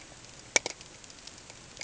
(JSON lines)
{"label": "ambient", "recorder": "HydroMoth"}